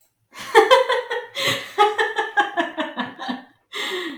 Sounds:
Laughter